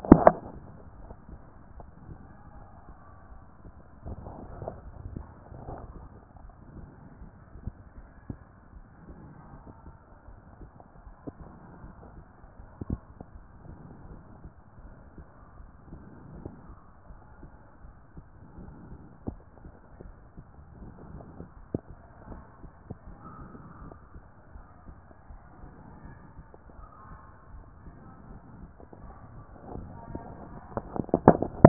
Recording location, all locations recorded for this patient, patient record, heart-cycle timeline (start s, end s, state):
pulmonary valve (PV)
pulmonary valve (PV)+tricuspid valve (TV)+mitral valve (MV)
#Age: nan
#Sex: Female
#Height: nan
#Weight: nan
#Pregnancy status: True
#Murmur: Absent
#Murmur locations: nan
#Most audible location: nan
#Systolic murmur timing: nan
#Systolic murmur shape: nan
#Systolic murmur grading: nan
#Systolic murmur pitch: nan
#Systolic murmur quality: nan
#Diastolic murmur timing: nan
#Diastolic murmur shape: nan
#Diastolic murmur grading: nan
#Diastolic murmur pitch: nan
#Diastolic murmur quality: nan
#Outcome: Abnormal
#Campaign: 2014 screening campaign
0.00	23.63	unannotated
23.63	23.81	diastole
23.81	23.92	S1
23.92	24.14	systole
24.14	24.22	S2
24.22	24.54	diastole
24.54	24.64	S1
24.64	24.86	systole
24.86	24.96	S2
24.96	25.30	diastole
25.30	25.40	S1
25.40	25.60	systole
25.60	25.70	S2
25.70	26.04	diastole
26.04	26.16	S1
26.16	26.36	systole
26.36	26.44	S2
26.44	26.78	diastole
26.78	26.88	S1
26.88	27.08	systole
27.08	27.18	S2
27.18	27.52	diastole
27.52	27.64	S1
27.64	27.84	systole
27.84	27.94	S2
27.94	28.28	diastole
28.28	28.40	S1
28.40	28.58	systole
28.58	28.68	S2
28.68	29.02	diastole
29.02	29.14	S1
29.14	29.34	systole
29.34	29.42	S2
29.42	29.72	diastole
29.72	31.68	unannotated